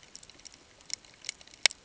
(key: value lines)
label: ambient
recorder: HydroMoth